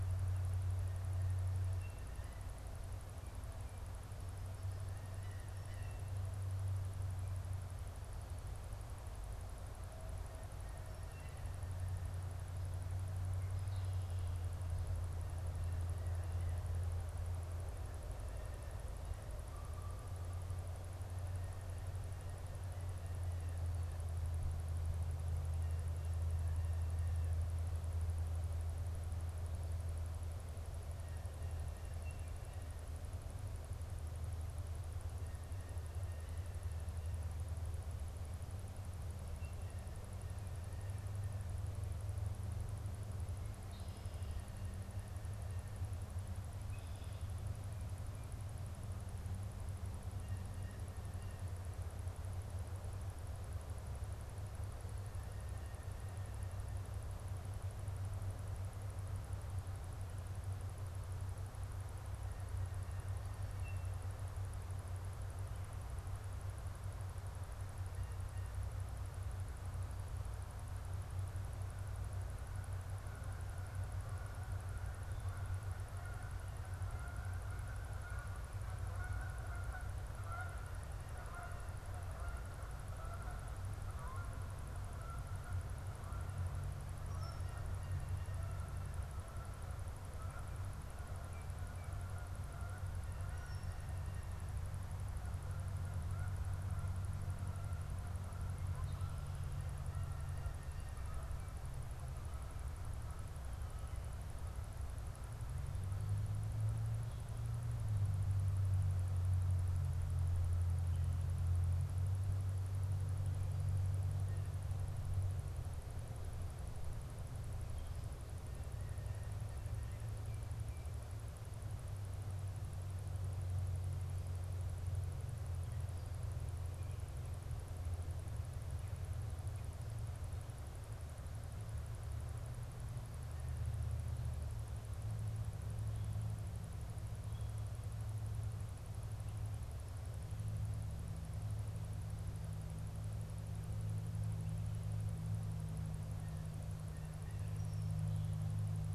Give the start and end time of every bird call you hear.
4.6s-6.2s: Blue Jay (Cyanocitta cristata)
50.0s-51.8s: Blue Jay (Cyanocitta cristata)
72.8s-104.9s: Canada Goose (Branta canadensis)

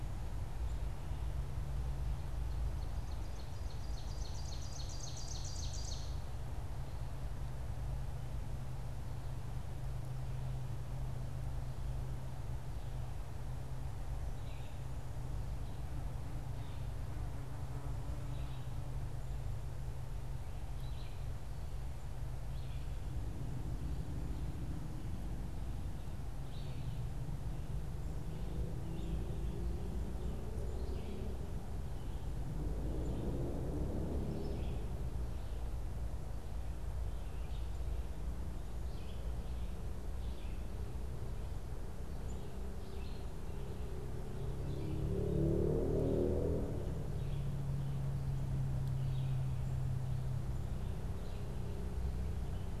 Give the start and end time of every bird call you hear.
0.0s-27.3s: Red-eyed Vireo (Vireo olivaceus)
2.1s-6.4s: Ovenbird (Seiurus aurocapilla)
28.7s-52.8s: Red-eyed Vireo (Vireo olivaceus)

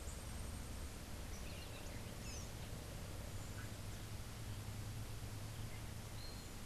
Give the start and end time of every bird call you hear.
6.1s-6.5s: Yellow-crowned Euphonia (Euphonia luteicapilla)

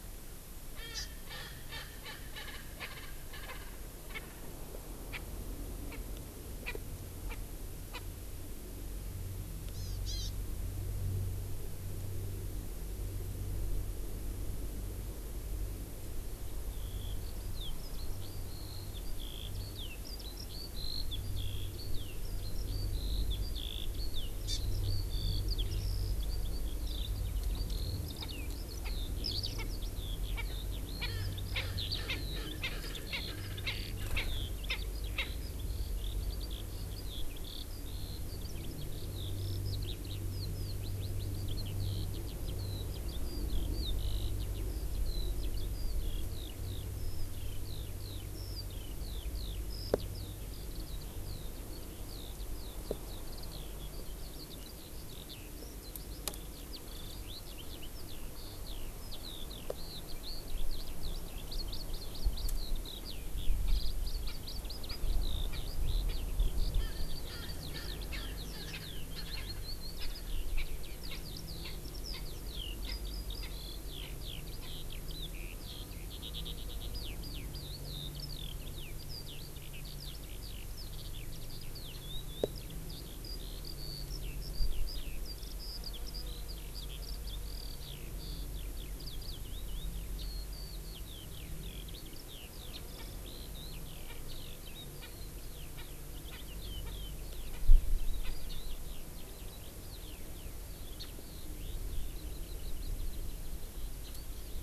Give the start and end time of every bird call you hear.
0.7s-3.7s: Erckel's Francolin (Pternistis erckelii)
4.0s-4.2s: Erckel's Francolin (Pternistis erckelii)
5.1s-5.2s: Erckel's Francolin (Pternistis erckelii)
5.8s-6.0s: Erckel's Francolin (Pternistis erckelii)
6.6s-6.7s: Erckel's Francolin (Pternistis erckelii)
7.2s-7.3s: Erckel's Francolin (Pternistis erckelii)
7.9s-8.0s: Erckel's Francolin (Pternistis erckelii)
9.7s-10.3s: Hawaii Amakihi (Chlorodrepanis virens)
16.5s-104.6s: Eurasian Skylark (Alauda arvensis)
24.4s-24.6s: Hawaii Amakihi (Chlorodrepanis virens)
28.1s-28.2s: Erckel's Francolin (Pternistis erckelii)
28.8s-28.9s: Erckel's Francolin (Pternistis erckelii)
29.5s-29.6s: Erckel's Francolin (Pternistis erckelii)
30.3s-30.4s: Erckel's Francolin (Pternistis erckelii)
30.9s-31.1s: Erckel's Francolin (Pternistis erckelii)
31.5s-31.6s: Erckel's Francolin (Pternistis erckelii)
31.9s-32.2s: Erckel's Francolin (Pternistis erckelii)
32.5s-32.7s: Erckel's Francolin (Pternistis erckelii)
33.1s-33.2s: Erckel's Francolin (Pternistis erckelii)
33.6s-33.7s: Erckel's Francolin (Pternistis erckelii)
34.1s-34.2s: Erckel's Francolin (Pternistis erckelii)
34.6s-34.8s: Erckel's Francolin (Pternistis erckelii)
35.1s-35.3s: Erckel's Francolin (Pternistis erckelii)
61.4s-62.5s: Hawaii Amakihi (Chlorodrepanis virens)
63.6s-63.7s: Erckel's Francolin (Pternistis erckelii)
64.2s-64.3s: Erckel's Francolin (Pternistis erckelii)
64.8s-64.9s: Erckel's Francolin (Pternistis erckelii)
65.5s-65.6s: Erckel's Francolin (Pternistis erckelii)
67.3s-68.4s: Erckel's Francolin (Pternistis erckelii)
69.9s-70.1s: Erckel's Francolin (Pternistis erckelii)
70.5s-70.7s: Erckel's Francolin (Pternistis erckelii)
71.1s-71.2s: Erckel's Francolin (Pternistis erckelii)
71.6s-71.7s: Erckel's Francolin (Pternistis erckelii)
72.0s-72.2s: Erckel's Francolin (Pternistis erckelii)
72.8s-73.0s: Erckel's Francolin (Pternistis erckelii)
73.3s-73.5s: Erckel's Francolin (Pternistis erckelii)
92.9s-93.1s: Erckel's Francolin (Pternistis erckelii)
94.0s-94.1s: Erckel's Francolin (Pternistis erckelii)
94.9s-95.1s: Erckel's Francolin (Pternistis erckelii)
95.7s-95.8s: Erckel's Francolin (Pternistis erckelii)
96.3s-96.4s: Erckel's Francolin (Pternistis erckelii)
96.8s-96.9s: Erckel's Francolin (Pternistis erckelii)
97.5s-97.6s: Erckel's Francolin (Pternistis erckelii)
98.1s-98.3s: Erckel's Francolin (Pternistis erckelii)

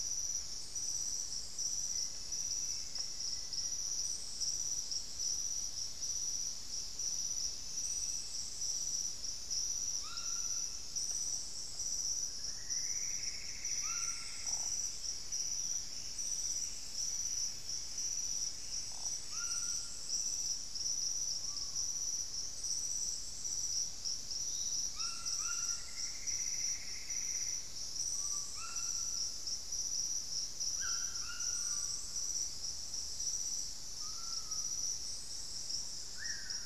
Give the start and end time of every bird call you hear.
1.7s-4.1s: Black-faced Antthrush (Formicarius analis)
9.9s-20.2s: White-throated Toucan (Ramphastos tucanus)
12.2s-14.6s: Plumbeous Antbird (Myrmelastes hyperythrus)
13.7s-20.4s: Buff-breasted Wren (Cantorchilus leucotis)
21.3s-21.9s: Screaming Piha (Lipaugus vociferans)
24.7s-32.1s: White-throated Toucan (Ramphastos tucanus)
25.4s-27.7s: Plumbeous Antbird (Myrmelastes hyperythrus)
28.1s-36.7s: Screaming Piha (Lipaugus vociferans)

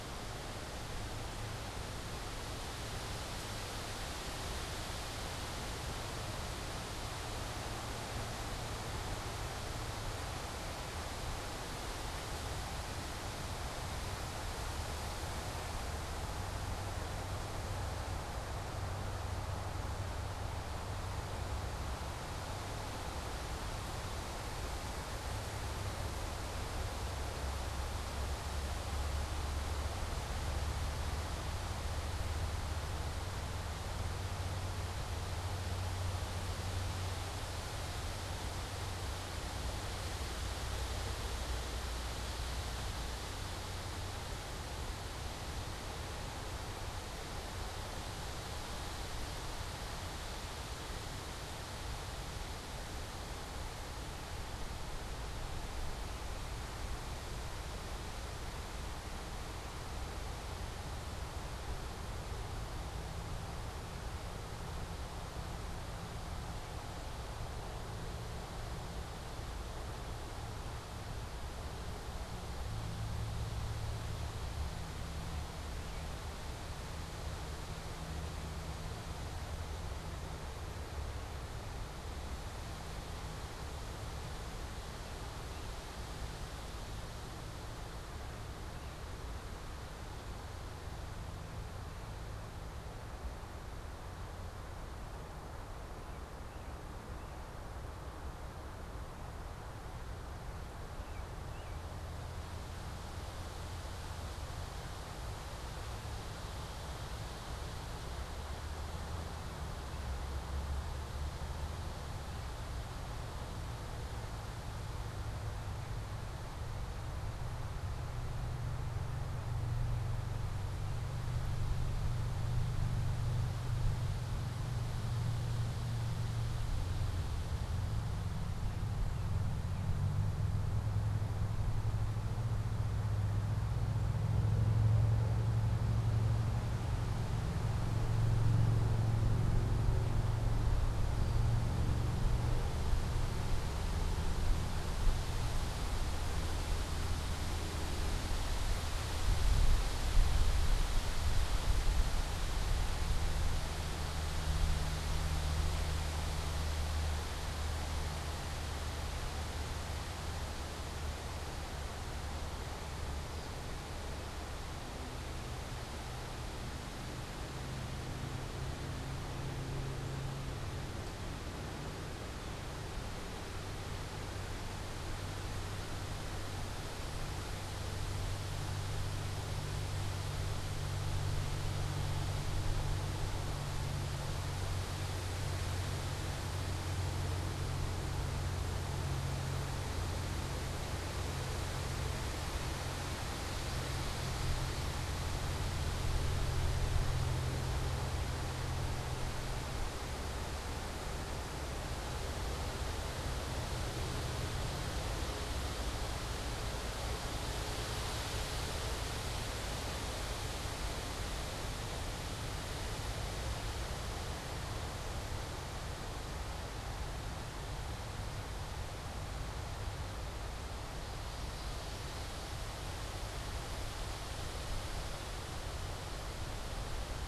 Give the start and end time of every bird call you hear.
100.8s-102.0s: American Robin (Turdus migratorius)
141.1s-141.6s: unidentified bird
163.2s-163.6s: unidentified bird

